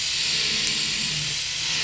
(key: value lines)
label: anthrophony, boat engine
recorder: SoundTrap 500